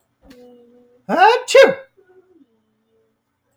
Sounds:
Sneeze